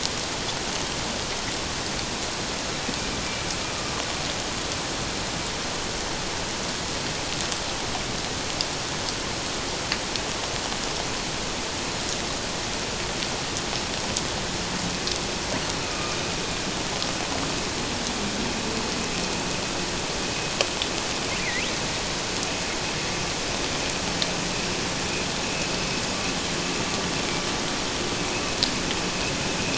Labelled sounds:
15.8	16.2	killer whale, northern resident, A clan, AA subclan, call N04, 1.2 to 2.6 kHz
21.4	21.8	killer whale, northern resident, A clan, AA subclan, call N02, 1.8 to 2.8 kHz

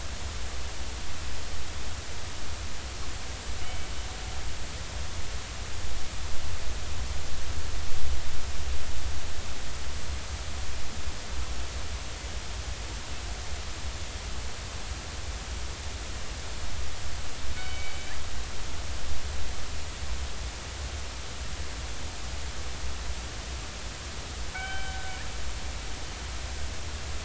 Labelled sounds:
3.6	3.9	killer whale, northern resident, 2.2 to 2.3 kHz
17.6	18.0	killer whale, northern resident, 2.2 to 3.1 kHz
24.5	25.0	killer whale, northern resident, 1.3 to 3.1 kHz

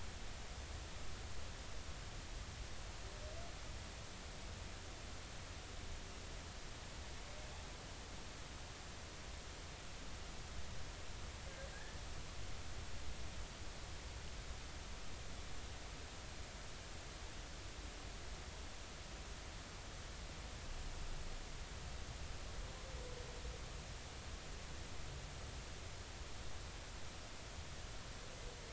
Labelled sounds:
11.7	12.0	humpback whale, 1.5 to 1.8 kHz

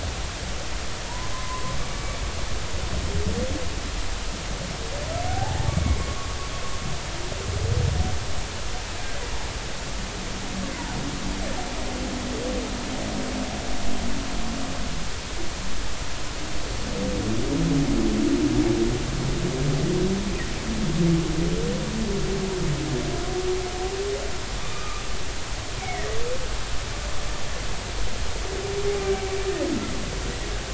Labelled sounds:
1.0	1.7	humpback whale, 0.86 to 1.2 kHz
5.3	6.0	humpback whale, 0.80 to 2.3 kHz
24.7	25.0	humpback whale, 1.1 to 2.5 kHz
25.8	26.0	humpback whale, 2.1 to 2.4 kHz
29.0	29.3	humpback whale, 2.2 to 2.4 kHz

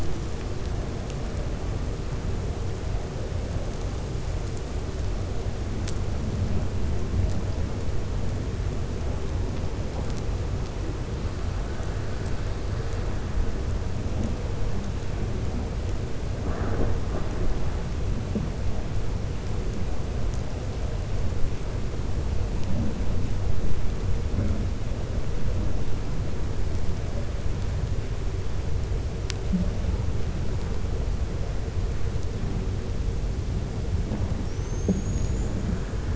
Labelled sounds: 34.4	35.6	killer whale, 5.5 to 7.3 kHz

